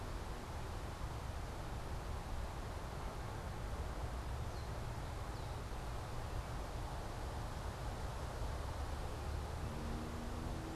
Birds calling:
unidentified bird

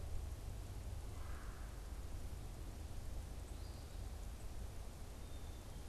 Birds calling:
Black-capped Chickadee (Poecile atricapillus)
unidentified bird
Red-bellied Woodpecker (Melanerpes carolinus)
Eastern Phoebe (Sayornis phoebe)

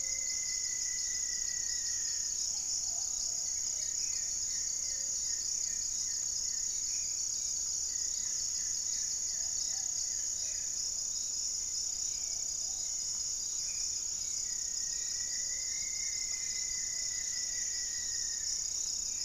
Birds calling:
Hauxwell's Thrush (Turdus hauxwelli)
unidentified bird
Plumbeous Pigeon (Patagioenas plumbea)
Black-faced Antthrush (Formicarius analis)
Rufous-fronted Antthrush (Formicarius rufifrons)
Goeldi's Antbird (Akletos goeldii)
Gray-fronted Dove (Leptotila rufaxilla)

